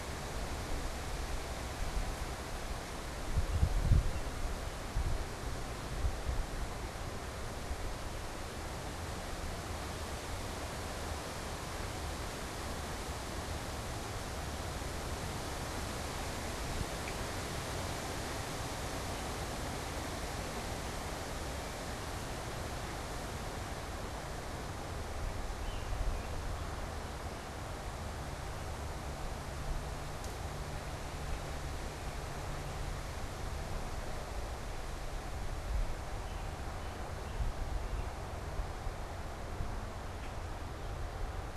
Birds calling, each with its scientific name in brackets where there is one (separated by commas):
American Robin (Turdus migratorius)